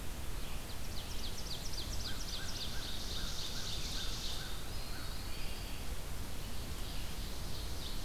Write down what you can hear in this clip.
Ovenbird, American Crow, Eastern Wood-Pewee